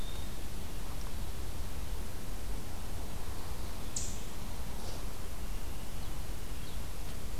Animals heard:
forest ambience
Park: Marsh-Billings-Rockefeller National Historical Park